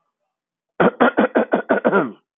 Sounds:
Cough